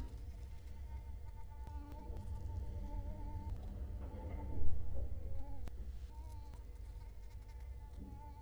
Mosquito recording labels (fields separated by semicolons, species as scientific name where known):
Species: Culex quinquefasciatus; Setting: cup